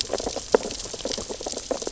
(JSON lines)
{"label": "biophony, sea urchins (Echinidae)", "recorder": "SoundTrap 600 or HydroMoth"}